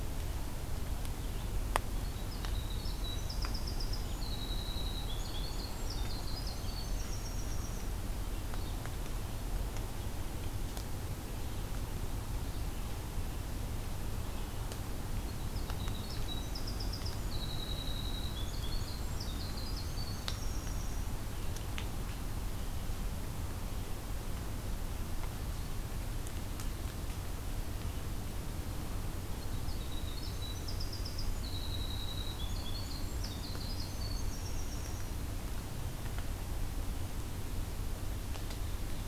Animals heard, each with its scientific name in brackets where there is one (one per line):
Winter Wren (Troglodytes hiemalis)
Red-eyed Vireo (Vireo olivaceus)